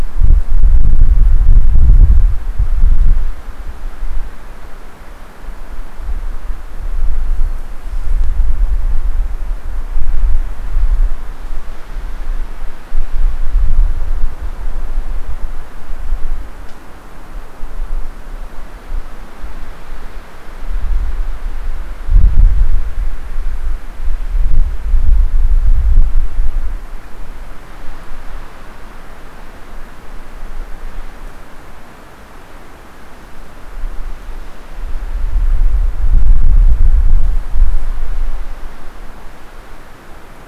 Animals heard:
forest ambience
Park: Hubbard Brook Experimental Forest